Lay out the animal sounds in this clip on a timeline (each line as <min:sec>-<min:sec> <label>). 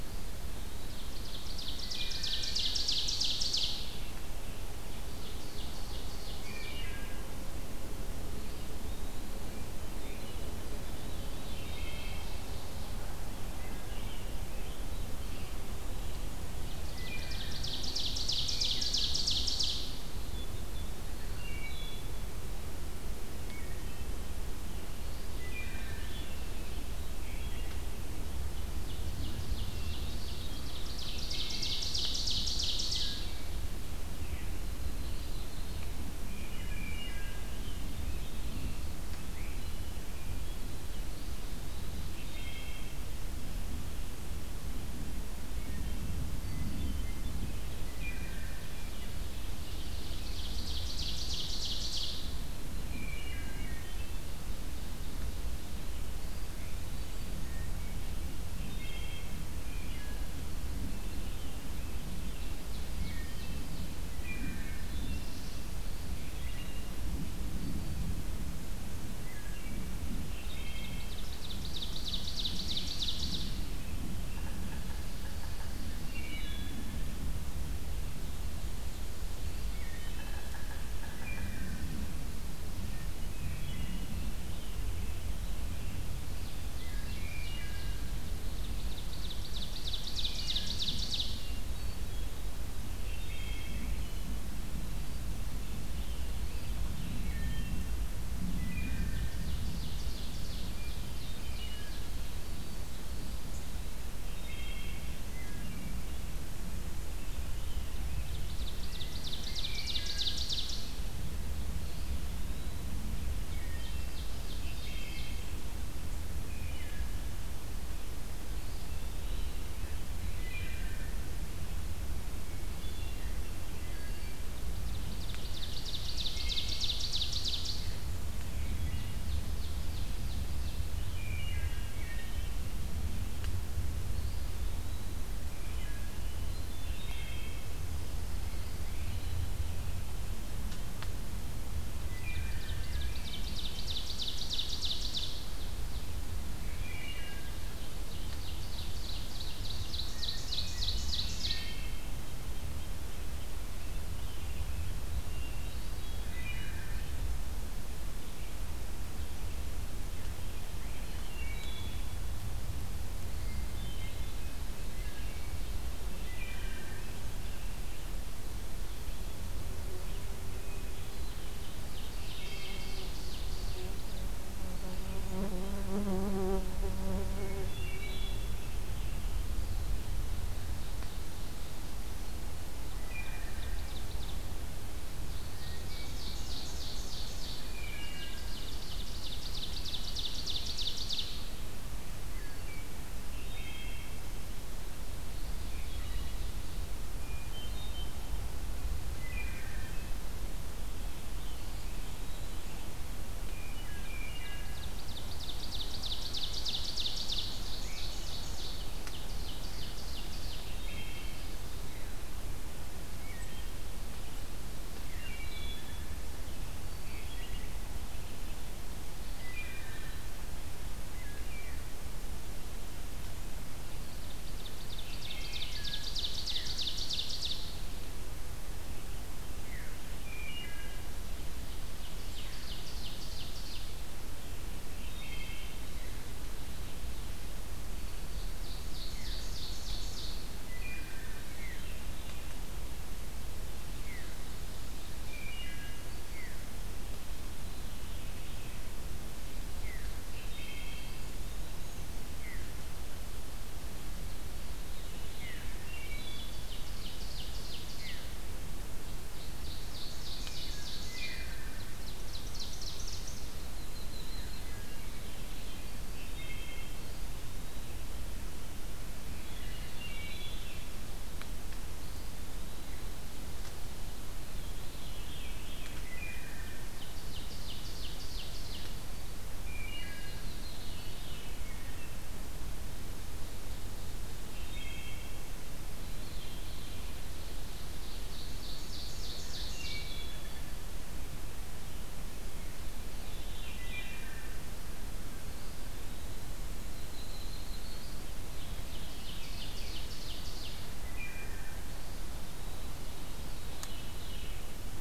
0:00.0-0:01.4 Eastern Wood-Pewee (Contopus virens)
0:00.6-0:04.3 Ovenbird (Seiurus aurocapilla)
0:01.7-0:02.7 Wood Thrush (Hylocichla mustelina)
0:04.9-0:06.9 Ovenbird (Seiurus aurocapilla)
0:06.4-0:07.2 Wood Thrush (Hylocichla mustelina)
0:08.4-0:09.4 Eastern Wood-Pewee (Contopus virens)
0:10.7-0:12.3 Veery (Catharus fuscescens)
0:11.1-0:13.0 Ovenbird (Seiurus aurocapilla)
0:11.5-0:12.3 Wood Thrush (Hylocichla mustelina)
0:13.5-0:14.8 Red-breasted Nuthatch (Sitta canadensis)
0:15.0-0:16.2 Eastern Wood-Pewee (Contopus virens)
0:16.8-0:17.6 Wood Thrush (Hylocichla mustelina)
0:16.8-0:20.1 Ovenbird (Seiurus aurocapilla)
0:18.4-0:19.2 Wood Thrush (Hylocichla mustelina)
0:21.2-0:22.2 Wood Thrush (Hylocichla mustelina)
0:23.4-0:24.3 Wood Thrush (Hylocichla mustelina)
0:25.3-0:26.2 Wood Thrush (Hylocichla mustelina)
0:28.8-0:33.3 Ovenbird (Seiurus aurocapilla)
0:29.7-0:30.7 Hermit Thrush (Catharus guttatus)
0:31.2-0:31.9 Wood Thrush (Hylocichla mustelina)
0:32.9-0:33.6 Wood Thrush (Hylocichla mustelina)
0:34.0-0:34.6 Veery (Catharus fuscescens)
0:34.4-0:36.0 Yellow-rumped Warbler (Setophaga coronata)
0:36.2-0:37.5 Wood Thrush (Hylocichla mustelina)
0:40.9-0:42.4 Eastern Wood-Pewee (Contopus virens)
0:42.1-0:42.9 Wood Thrush (Hylocichla mustelina)
0:45.4-0:46.3 Wood Thrush (Hylocichla mustelina)
0:46.4-0:47.6 Hermit Thrush (Catharus guttatus)
0:47.7-0:48.7 Wood Thrush (Hylocichla mustelina)
0:49.6-0:52.5 Ovenbird (Seiurus aurocapilla)
0:52.9-0:54.1 Wood Thrush (Hylocichla mustelina)
0:58.6-1:00.3 Wood Thrush (Hylocichla mustelina)
1:00.7-1:02.9 Scarlet Tanager (Piranga olivacea)
1:02.3-1:04.0 Ovenbird (Seiurus aurocapilla)
1:02.9-1:03.7 Wood Thrush (Hylocichla mustelina)
1:04.0-1:06.9 Wood Thrush (Hylocichla mustelina)
1:09.2-1:09.9 Wood Thrush (Hylocichla mustelina)
1:10.3-1:11.1 Wood Thrush (Hylocichla mustelina)
1:10.5-1:13.6 Ovenbird (Seiurus aurocapilla)
1:14.2-1:16.1 Yellow-bellied Sapsucker (Sphyrapicus varius)
1:16.0-1:16.9 Wood Thrush (Hylocichla mustelina)
1:19.7-1:20.4 Wood Thrush (Hylocichla mustelina)
1:19.7-1:22.0 Yellow-bellied Sapsucker (Sphyrapicus varius)
1:21.1-1:21.8 Wood Thrush (Hylocichla mustelina)
1:23.3-1:24.2 Wood Thrush (Hylocichla mustelina)
1:26.7-1:28.0 Wood Thrush (Hylocichla mustelina)
1:28.3-1:31.6 Ovenbird (Seiurus aurocapilla)
1:30.2-1:30.7 Wood Thrush (Hylocichla mustelina)
1:31.4-1:32.4 Hermit Thrush (Catharus guttatus)
1:33.0-1:33.9 Wood Thrush (Hylocichla mustelina)
1:36.3-1:37.4 Eastern Wood-Pewee (Contopus virens)
1:37.2-1:37.8 Wood Thrush (Hylocichla mustelina)
1:38.6-1:39.4 Wood Thrush (Hylocichla mustelina)
1:39.3-1:41.4 Ovenbird (Seiurus aurocapilla)
1:41.4-1:42.1 Wood Thrush (Hylocichla mustelina)
1:44.2-1:46.0 Wood Thrush (Hylocichla mustelina)
1:48.0-1:51.2 Ovenbird (Seiurus aurocapilla)
1:49.6-1:50.3 Wood Thrush (Hylocichla mustelina)
1:51.7-1:52.8 Eastern Wood-Pewee (Contopus virens)
1:53.1-1:55.5 Ovenbird (Seiurus aurocapilla)
1:53.6-1:55.5 Wood Thrush (Hylocichla mustelina)
1:56.4-1:57.2 Wood Thrush (Hylocichla mustelina)
1:58.5-1:59.7 Eastern Wood-Pewee (Contopus virens)
2:00.3-2:01.2 Wood Thrush (Hylocichla mustelina)
2:02.6-2:04.4 Wood Thrush (Hylocichla mustelina)
2:04.7-2:07.9 Ovenbird (Seiurus aurocapilla)
2:06.2-2:06.9 Wood Thrush (Hylocichla mustelina)
2:08.4-2:09.3 Wood Thrush (Hylocichla mustelina)
2:09.0-2:10.8 Ovenbird (Seiurus aurocapilla)
2:11.0-2:12.6 Wood Thrush (Hylocichla mustelina)
2:14.1-2:15.2 Eastern Wood-Pewee (Contopus virens)
2:15.5-2:16.2 Wood Thrush (Hylocichla mustelina)
2:16.0-2:17.2 Hermit Thrush (Catharus guttatus)
2:16.8-2:17.6 Wood Thrush (Hylocichla mustelina)
2:22.0-2:23.1 Wood Thrush (Hylocichla mustelina)
2:22.4-2:26.2 Ovenbird (Seiurus aurocapilla)
2:26.6-2:27.4 Wood Thrush (Hylocichla mustelina)
2:27.9-2:31.8 Ovenbird (Seiurus aurocapilla)
2:31.2-2:32.1 Wood Thrush (Hylocichla mustelina)
2:32.2-2:33.8 Red-breasted Nuthatch (Sitta canadensis)
2:35.3-2:36.6 Hermit Thrush (Catharus guttatus)
2:36.1-2:37.0 Wood Thrush (Hylocichla mustelina)
2:41.2-2:42.0 Wood Thrush (Hylocichla mustelina)
2:43.4-2:44.5 Hermit Thrush (Catharus guttatus)
2:44.9-2:45.6 Wood Thrush (Hylocichla mustelina)
2:46.1-2:47.0 Wood Thrush (Hylocichla mustelina)
2:50.5-2:51.8 Hermit Thrush (Catharus guttatus)
2:51.0-2:54.1 Ovenbird (Seiurus aurocapilla)
2:52.2-2:53.1 Wood Thrush (Hylocichla mustelina)
2:57.5-2:58.6 Wood Thrush (Hylocichla mustelina)
3:00.2-3:02.3 Ovenbird (Seiurus aurocapilla)
3:02.9-3:03.8 Wood Thrush (Hylocichla mustelina)
3:03.1-3:04.6 Ovenbird (Seiurus aurocapilla)
3:05.2-3:11.5 Ovenbird (Seiurus aurocapilla)
3:07.6-3:08.4 Wood Thrush (Hylocichla mustelina)
3:13.3-3:14.2 Wood Thrush (Hylocichla mustelina)
3:15.0-3:17.0 Ovenbird (Seiurus aurocapilla)
3:15.6-3:16.4 Wood Thrush (Hylocichla mustelina)
3:17.0-3:18.1 Wood Thrush (Hylocichla mustelina)
3:19.1-3:20.1 Wood Thrush (Hylocichla mustelina)
3:21.2-3:22.7 Eastern Wood-Pewee (Contopus virens)
3:23.4-3:24.8 Wood Thrush (Hylocichla mustelina)
3:24.1-3:30.7 Ovenbird (Seiurus aurocapilla)
3:30.6-3:31.6 Wood Thrush (Hylocichla mustelina)
3:33.1-3:33.8 Wood Thrush (Hylocichla mustelina)
3:35.0-3:36.0 Wood Thrush (Hylocichla mustelina)
3:39.4-3:40.1 Wood Thrush (Hylocichla mustelina)
3:41.1-3:41.8 Wood Thrush (Hylocichla mustelina)
3:44.3-3:47.7 Ovenbird (Seiurus aurocapilla)
3:45.2-3:46.0 Wood Thrush (Hylocichla mustelina)
3:49.5-3:49.9 Veery (Catharus fuscescens)
3:50.2-3:51.1 Wood Thrush (Hylocichla mustelina)
3:51.5-3:54.2 Ovenbird (Seiurus aurocapilla)
3:54.9-3:55.8 Wood Thrush (Hylocichla mustelina)
3:57.9-4:00.5 Ovenbird (Seiurus aurocapilla)
3:59.1-3:59.4 Veery (Catharus fuscescens)
4:00.5-4:01.4 Wood Thrush (Hylocichla mustelina)
4:01.4-4:02.5 Veery (Catharus fuscescens)
4:03.9-4:04.3 Veery (Catharus fuscescens)
4:05.2-4:06.1 Wood Thrush (Hylocichla mustelina)
4:06.3-4:06.7 Veery (Catharus fuscescens)
4:07.4-4:08.7 Veery (Catharus fuscescens)
4:09.8-4:10.1 Veery (Catharus fuscescens)
4:10.2-4:11.2 Wood Thrush (Hylocichla mustelina)
4:11.0-4:12.1 Eastern Wood-Pewee (Contopus virens)
4:12.3-4:12.7 Veery (Catharus fuscescens)
4:14.4-4:16.0 Veery (Catharus fuscescens)
4:15.8-4:16.7 Wood Thrush (Hylocichla mustelina)
4:16.0-4:18.3 Ovenbird (Seiurus aurocapilla)
4:17.9-4:18.2 Veery (Catharus fuscescens)
4:19.0-4:23.6 Ovenbird (Seiurus aurocapilla)
4:20.9-4:21.7 Wood Thrush (Hylocichla mustelina)
4:21.1-4:21.4 Veery (Catharus fuscescens)
4:23.6-4:24.8 Yellow-rumped Warbler (Setophaga coronata)
4:24.5-4:26.1 Veery (Catharus fuscescens)
4:26.3-4:27.1 Wood Thrush (Hylocichla mustelina)
4:29.8-4:30.8 Wood Thrush (Hylocichla mustelina)
4:32.0-4:33.3 Eastern Wood-Pewee (Contopus virens)
4:34.5-4:36.0 Veery (Catharus fuscescens)
4:35.8-4:36.9 Wood Thrush (Hylocichla mustelina)
4:36.8-4:39.1 Ovenbird (Seiurus aurocapilla)
4:39.6-4:40.4 Wood Thrush (Hylocichla mustelina)
4:40.0-4:41.7 Veery (Catharus fuscescens)
4:44.6-4:45.4 Wood Thrush (Hylocichla mustelina)
4:46.0-4:47.0 Veery (Catharus fuscescens)
4:47.8-4:50.2 Ovenbird (Seiurus aurocapilla)
4:49.8-4:50.5 Wood Thrush (Hylocichla mustelina)
4:52.9-4:54.3 Veery (Catharus fuscescens)
4:53.6-4:54.5 Wood Thrush (Hylocichla mustelina)
4:55.4-4:56.5 Eastern Wood-Pewee (Contopus virens)
4:56.7-4:58.2 Black-throated Blue Warbler (Setophaga caerulescens)
4:58.3-5:01.0 Ovenbird (Seiurus aurocapilla)
4:58.7-5:00.2 Veery (Catharus fuscescens)
5:01.0-5:01.9 Wood Thrush (Hylocichla mustelina)
5:01.8-5:02.9 Eastern Wood-Pewee (Contopus virens)
5:03.3-5:04.6 Veery (Catharus fuscescens)